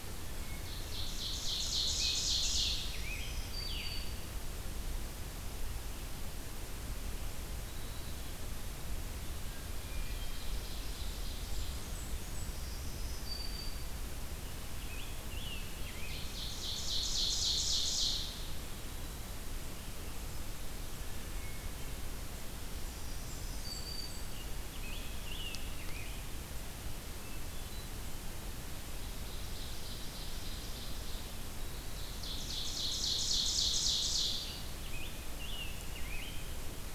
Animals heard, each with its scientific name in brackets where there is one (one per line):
Scarlet Tanager (Piranga olivacea)
Black-throated Green Warbler (Setophaga virens)
Blackburnian Warbler (Setophaga fusca)
Ovenbird (Seiurus aurocapilla)
Hermit Thrush (Catharus guttatus)